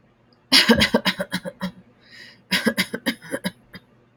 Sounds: Cough